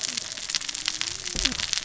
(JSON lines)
{"label": "biophony, cascading saw", "recorder": "SoundTrap 600 or HydroMoth"}